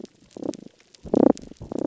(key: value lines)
label: biophony, damselfish
recorder: SoundTrap 300